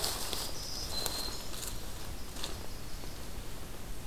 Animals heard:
Black-throated Green Warbler (Setophaga virens), Winter Wren (Troglodytes hiemalis)

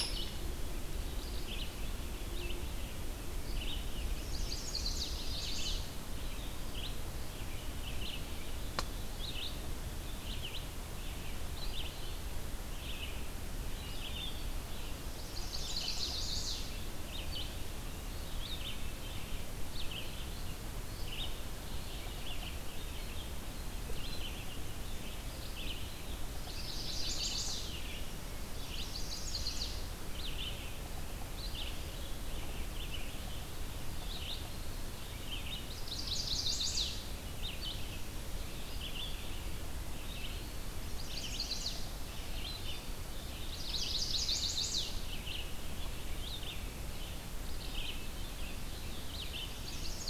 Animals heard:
Eastern Wood-Pewee (Contopus virens), Red-eyed Vireo (Vireo olivaceus), Chestnut-sided Warbler (Setophaga pensylvanica)

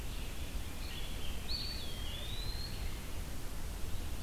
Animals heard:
Eastern Wood-Pewee (Contopus virens), Red-eyed Vireo (Vireo olivaceus)

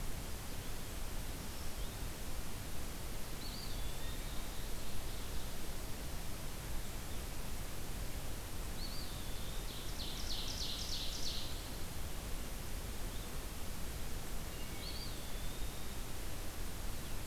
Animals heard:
Ovenbird (Seiurus aurocapilla), Wood Thrush (Hylocichla mustelina), Eastern Wood-Pewee (Contopus virens)

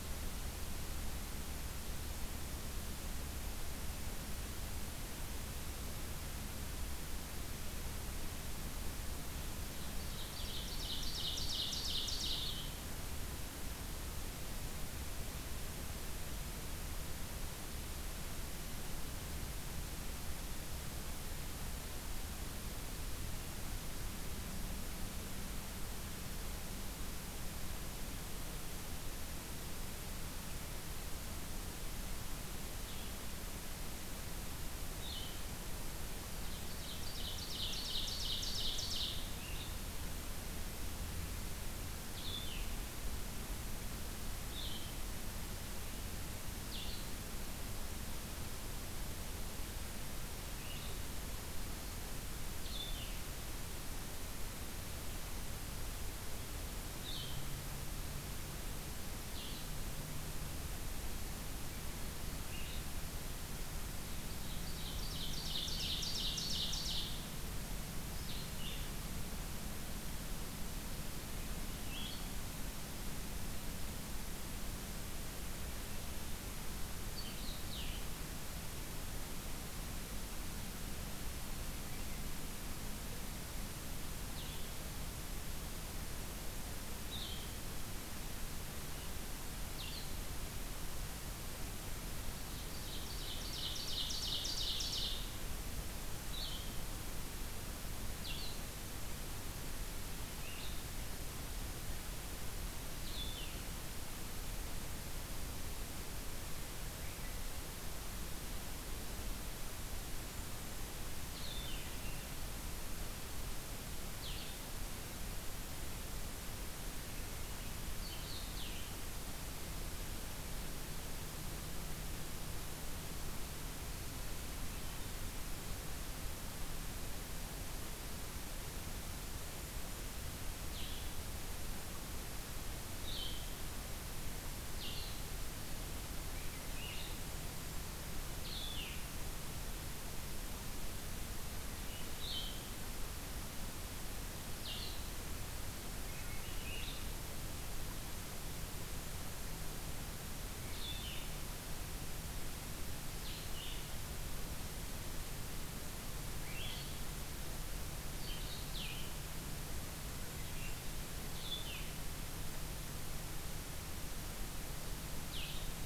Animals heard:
Swainson's Thrush (Catharus ustulatus), Ovenbird (Seiurus aurocapilla), Blue-headed Vireo (Vireo solitarius)

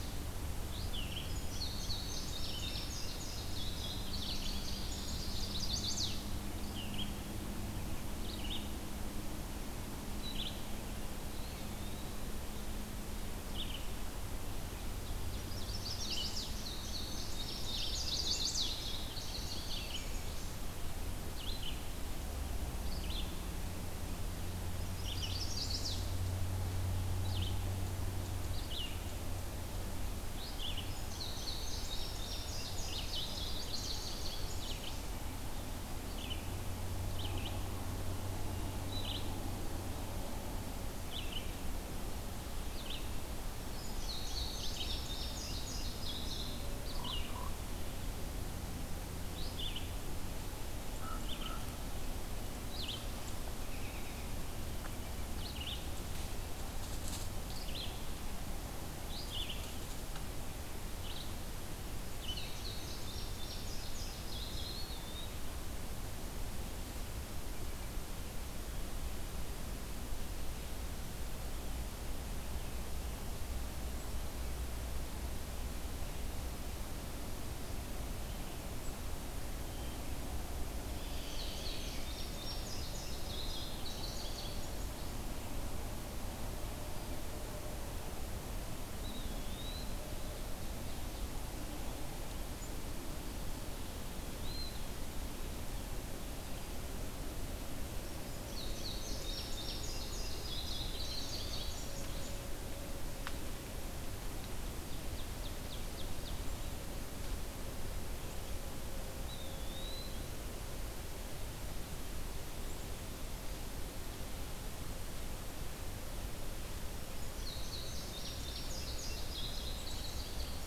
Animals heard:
Red-eyed Vireo (Vireo olivaceus), Ovenbird (Seiurus aurocapilla), Indigo Bunting (Passerina cyanea), American Robin (Turdus migratorius), Chestnut-sided Warbler (Setophaga pensylvanica), Eastern Wood-Pewee (Contopus virens), Common Raven (Corvus corax)

